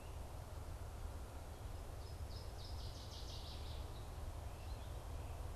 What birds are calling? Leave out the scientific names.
Northern Waterthrush, American Goldfinch